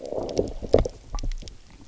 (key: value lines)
label: biophony, low growl
recorder: SoundTrap 300